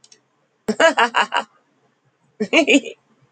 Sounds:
Laughter